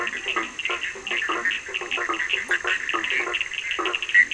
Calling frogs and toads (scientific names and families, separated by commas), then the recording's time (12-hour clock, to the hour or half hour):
Boana bischoffi (Hylidae), Boana faber (Hylidae), Leptodactylus latrans (Leptodactylidae), Sphaenorhynchus surdus (Hylidae)
~10pm